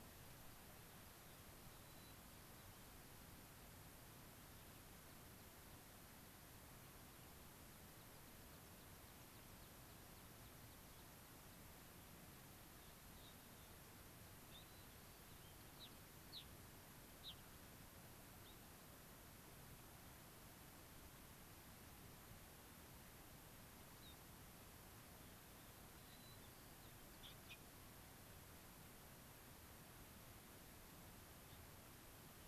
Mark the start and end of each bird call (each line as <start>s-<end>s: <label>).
1.7s-2.8s: Hermit Thrush (Catharus guttatus)
7.9s-11.0s: American Pipit (Anthus rubescens)
12.7s-13.7s: Gray-crowned Rosy-Finch (Leucosticte tephrocotis)
14.4s-14.7s: Gray-crowned Rosy-Finch (Leucosticte tephrocotis)
14.6s-15.6s: White-crowned Sparrow (Zonotrichia leucophrys)
15.7s-17.4s: Gray-crowned Rosy-Finch (Leucosticte tephrocotis)
18.4s-18.5s: unidentified bird
23.9s-24.1s: unidentified bird
25.9s-27.1s: White-crowned Sparrow (Zonotrichia leucophrys)